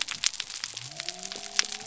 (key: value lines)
label: biophony
recorder: SoundTrap 300